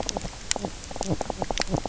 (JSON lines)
{"label": "biophony, knock croak", "recorder": "SoundTrap 300"}